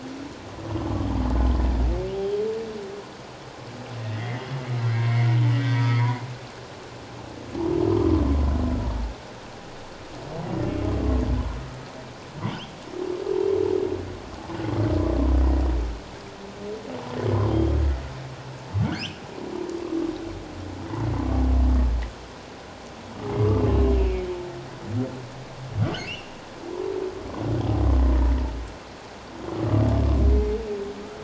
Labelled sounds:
4.0	4.4	humpback whale, 1.8 to 2.2 kHz
4.8	6.3	humpback whale, 0.94 to 2.3 kHz
7.9	8.2	humpback whale, 1.1 to 1.3 kHz
18.9	19.2	humpback whale, 2.1 to 3.2 kHz
23.6	24.3	humpback whale, 1.0 to 2.9 kHz
26.0	26.4	humpback whale, 2.6 to 3.1 kHz

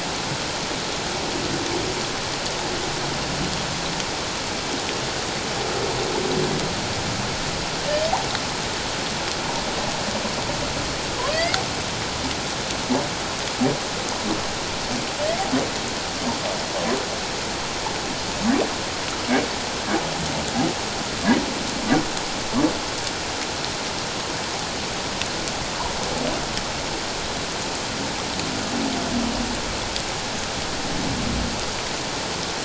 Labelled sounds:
11.3	11.6	humpback whale, 1.8 to 2.2 kHz

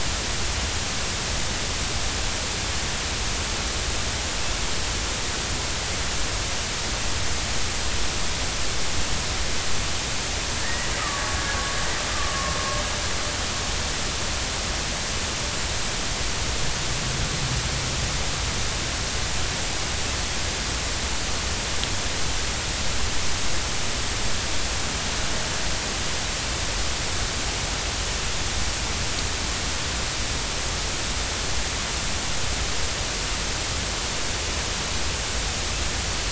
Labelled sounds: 10.6	11.4	killer whale, Bigg's (transient), 1.1 to 2.0 kHz
12.1	12.6	killer whale, Bigg's (transient), 1.0 to 1.3 kHz

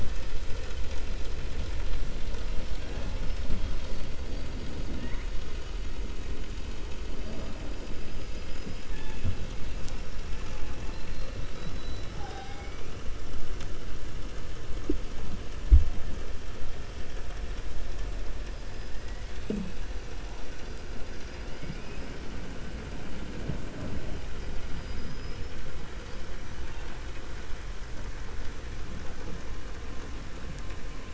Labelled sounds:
8.2	8.8	killer whale, 4.8 to 5.7 kHz
21.5	22.0	killer whale, 1.5 to 3.1 kHz

